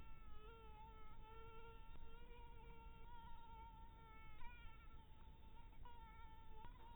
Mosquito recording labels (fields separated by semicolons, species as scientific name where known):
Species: Anopheles maculatus; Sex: female; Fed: blood-fed; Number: one; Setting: cup